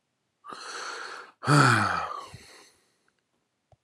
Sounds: Sigh